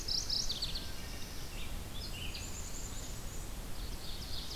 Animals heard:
Ovenbird (Seiurus aurocapilla), Black-capped Chickadee (Poecile atricapillus), Mourning Warbler (Geothlypis philadelphia), Wood Thrush (Hylocichla mustelina), Red-eyed Vireo (Vireo olivaceus)

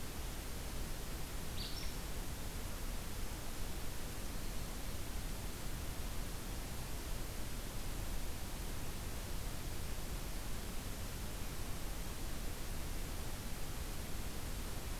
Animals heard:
Acadian Flycatcher (Empidonax virescens)

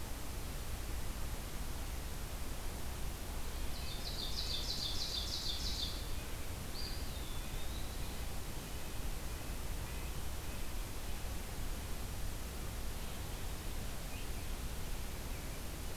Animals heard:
Ovenbird (Seiurus aurocapilla), Red-breasted Nuthatch (Sitta canadensis), Eastern Wood-Pewee (Contopus virens)

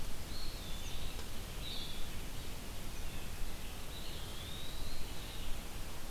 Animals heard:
Blue-headed Vireo (Vireo solitarius), Eastern Wood-Pewee (Contopus virens)

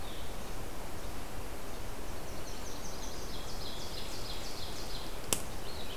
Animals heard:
Yellow-rumped Warbler (Setophaga coronata), Ovenbird (Seiurus aurocapilla), Blue-headed Vireo (Vireo solitarius)

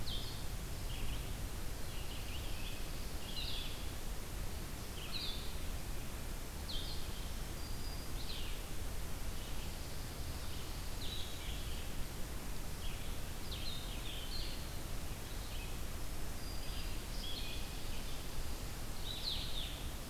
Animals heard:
Black-throated Green Warbler (Setophaga virens), Blue-headed Vireo (Vireo solitarius), Red-eyed Vireo (Vireo olivaceus)

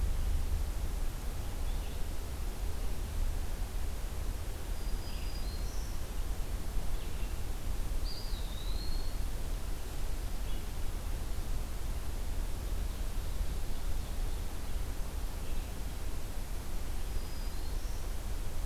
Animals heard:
Red-eyed Vireo (Vireo olivaceus), Black-throated Green Warbler (Setophaga virens), Eastern Wood-Pewee (Contopus virens)

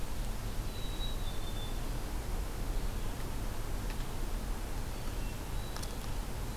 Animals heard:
Hermit Thrush (Catharus guttatus), Black-capped Chickadee (Poecile atricapillus), Ovenbird (Seiurus aurocapilla)

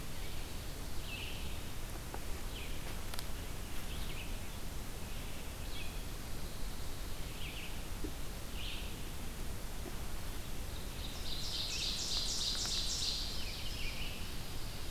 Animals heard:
Ovenbird (Seiurus aurocapilla), Red-eyed Vireo (Vireo olivaceus)

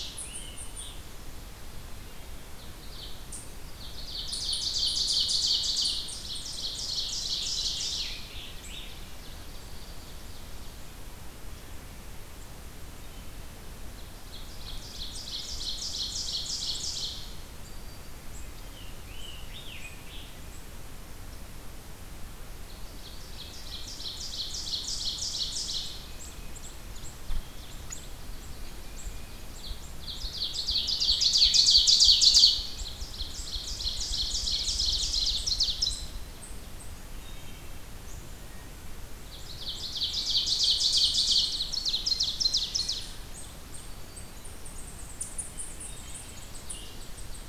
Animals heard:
Wood Thrush (Hylocichla mustelina), Tufted Titmouse (Baeolophus bicolor), Scarlet Tanager (Piranga olivacea), Ovenbird (Seiurus aurocapilla), Black-throated Green Warbler (Setophaga virens), unknown mammal

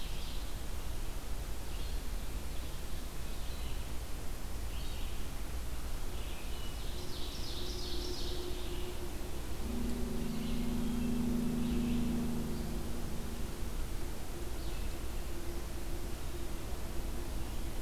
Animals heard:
Red-eyed Vireo (Vireo olivaceus), Wood Thrush (Hylocichla mustelina), Ovenbird (Seiurus aurocapilla)

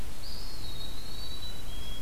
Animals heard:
White-throated Sparrow (Zonotrichia albicollis), Eastern Wood-Pewee (Contopus virens)

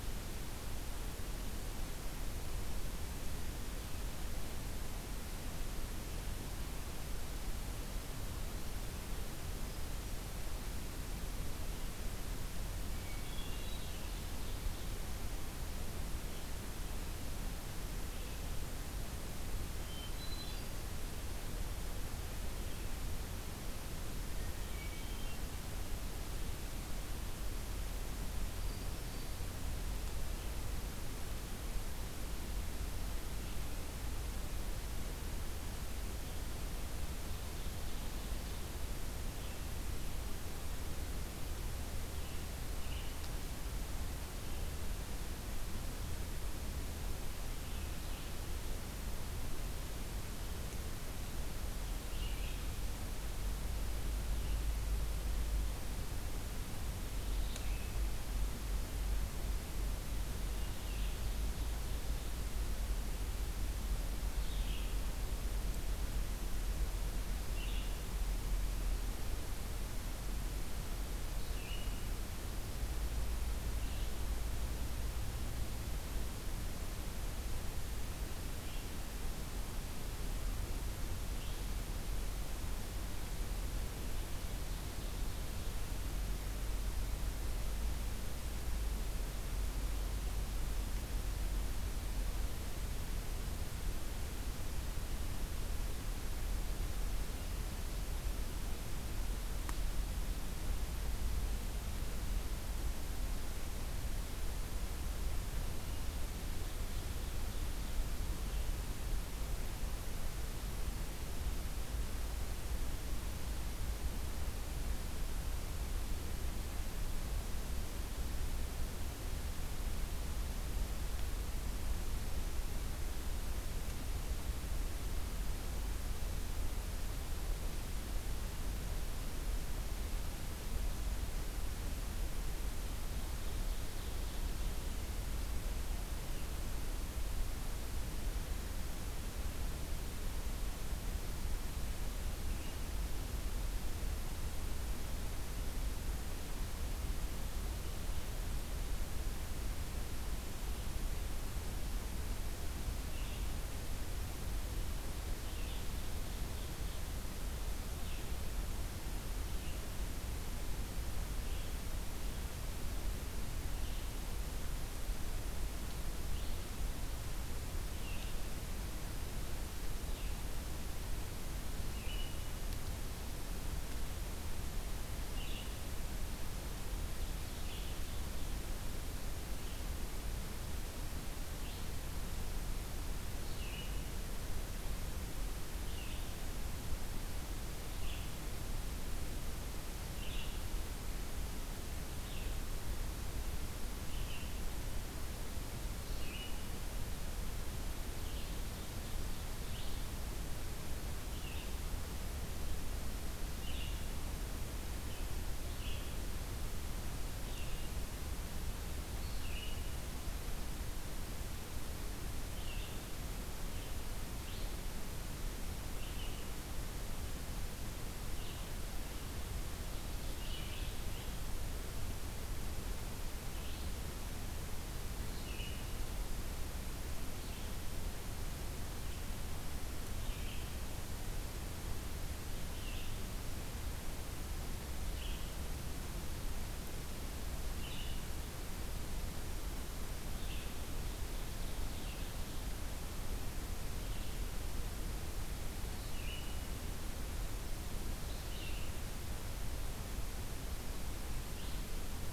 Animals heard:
Ovenbird (Seiurus aurocapilla), Hermit Thrush (Catharus guttatus), Red-eyed Vireo (Vireo olivaceus)

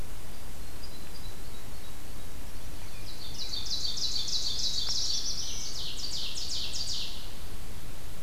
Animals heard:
unidentified call, Ovenbird (Seiurus aurocapilla), Black-throated Blue Warbler (Setophaga caerulescens)

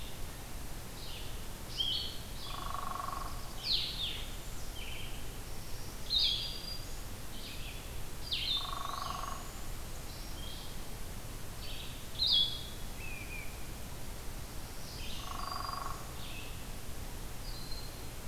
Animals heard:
Blue-headed Vireo (Vireo solitarius), Red-eyed Vireo (Vireo olivaceus), Black-throated Green Warbler (Setophaga virens), Hairy Woodpecker (Dryobates villosus), Black-throated Blue Warbler (Setophaga caerulescens), unidentified call

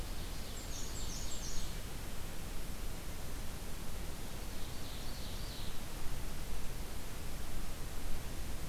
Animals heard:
Black-and-white Warbler (Mniotilta varia), Ovenbird (Seiurus aurocapilla)

